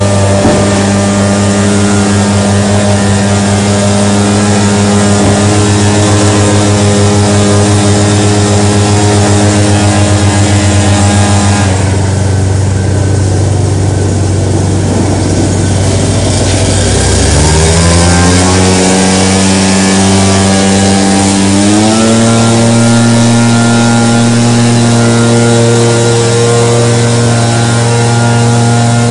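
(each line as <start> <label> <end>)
0.0 Loud and continuous mechanical mowing device sound with varying pitch and intensity. 29.1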